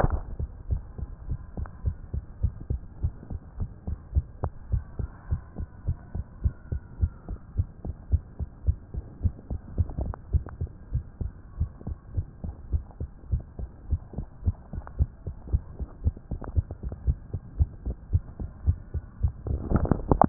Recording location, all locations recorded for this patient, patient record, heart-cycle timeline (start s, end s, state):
mitral valve (MV)
aortic valve (AV)+pulmonary valve (PV)+tricuspid valve (TV)+mitral valve (MV)
#Age: Child
#Sex: Female
#Height: 121.0 cm
#Weight: 23.7 kg
#Pregnancy status: False
#Murmur: Present
#Murmur locations: aortic valve (AV)
#Most audible location: aortic valve (AV)
#Systolic murmur timing: Holosystolic
#Systolic murmur shape: Plateau
#Systolic murmur grading: I/VI
#Systolic murmur pitch: Low
#Systolic murmur quality: Blowing
#Diastolic murmur timing: nan
#Diastolic murmur shape: nan
#Diastolic murmur grading: nan
#Diastolic murmur pitch: nan
#Diastolic murmur quality: nan
#Outcome: Abnormal
#Campaign: 2015 screening campaign
0.00	1.10	unannotated
1.10	1.26	diastole
1.26	1.38	S1
1.38	1.56	systole
1.56	1.68	S2
1.68	1.84	diastole
1.84	1.98	S1
1.98	2.12	systole
2.12	2.24	S2
2.24	2.42	diastole
2.42	2.54	S1
2.54	2.66	systole
2.66	2.82	S2
2.82	3.02	diastole
3.02	3.14	S1
3.14	3.30	systole
3.30	3.40	S2
3.40	3.58	diastole
3.58	3.70	S1
3.70	3.84	systole
3.84	3.96	S2
3.96	4.12	diastole
4.12	4.26	S1
4.26	4.42	systole
4.42	4.52	S2
4.52	4.70	diastole
4.70	4.84	S1
4.84	4.98	systole
4.98	5.12	S2
5.12	5.30	diastole
5.30	5.42	S1
5.42	5.58	systole
5.58	5.68	S2
5.68	5.86	diastole
5.86	5.98	S1
5.98	6.14	systole
6.14	6.24	S2
6.24	6.42	diastole
6.42	6.54	S1
6.54	6.70	systole
6.70	6.80	S2
6.80	6.98	diastole
6.98	7.12	S1
7.12	7.28	systole
7.28	7.38	S2
7.38	7.56	diastole
7.56	7.68	S1
7.68	7.84	systole
7.84	7.96	S2
7.96	8.12	diastole
8.12	8.24	S1
8.24	8.40	systole
8.40	8.48	S2
8.48	8.64	diastole
8.64	8.78	S1
8.78	8.94	systole
8.94	9.06	S2
9.06	9.22	diastole
9.22	9.34	S1
9.34	9.50	systole
9.50	9.60	S2
9.60	9.74	diastole
9.74	9.88	S1
9.88	10.00	systole
10.00	10.14	S2
10.14	10.32	diastole
10.32	10.46	S1
10.46	10.60	systole
10.60	10.72	S2
10.72	10.92	diastole
10.92	11.04	S1
11.04	11.20	systole
11.20	11.34	S2
11.34	11.58	diastole
11.58	11.70	S1
11.70	11.86	systole
11.86	11.96	S2
11.96	12.16	diastole
12.16	12.28	S1
12.28	12.44	systole
12.44	12.54	S2
12.54	12.72	diastole
12.72	12.84	S1
12.84	13.00	systole
13.00	13.10	S2
13.10	13.30	diastole
13.30	13.42	S1
13.42	13.58	systole
13.58	13.70	S2
13.70	13.88	diastole
13.88	14.00	S1
14.00	14.14	systole
14.14	14.26	S2
14.26	14.44	diastole
14.44	14.56	S1
14.56	14.74	systole
14.74	14.84	S2
14.84	14.98	diastole
14.98	15.10	S1
15.10	15.26	systole
15.26	15.36	S2
15.36	15.52	diastole
15.52	15.64	S1
15.64	15.80	systole
15.80	15.88	S2
15.88	16.04	diastole
16.04	16.16	S1
16.16	16.32	systole
16.32	16.40	S2
16.40	16.56	diastole
16.56	16.68	S1
16.68	16.82	systole
16.82	16.92	S2
16.92	17.06	diastole
17.06	17.20	S1
17.20	17.34	systole
17.34	17.42	S2
17.42	17.58	diastole
17.58	17.72	S1
17.72	17.86	systole
17.86	17.96	S2
17.96	18.12	diastole
18.12	18.22	S1
18.22	18.40	systole
18.40	18.50	S2
18.50	18.66	diastole
18.66	18.80	S1
18.80	18.94	systole
18.94	19.04	S2
19.04	19.22	diastole
19.22	19.36	S1
19.36	20.29	unannotated